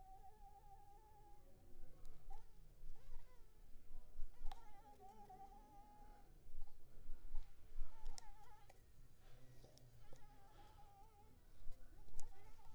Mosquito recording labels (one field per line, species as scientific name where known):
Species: Anopheles arabiensis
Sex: female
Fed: blood-fed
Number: one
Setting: cup